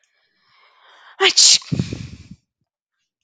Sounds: Sneeze